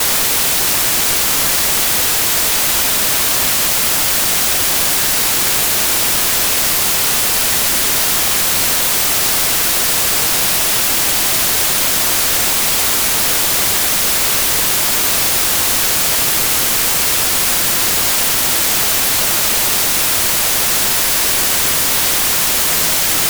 Is a motorcycle starting up?
no